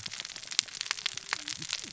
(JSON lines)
{"label": "biophony, cascading saw", "recorder": "SoundTrap 600 or HydroMoth"}